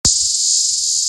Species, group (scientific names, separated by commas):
Hadoa duryi, Cicadidae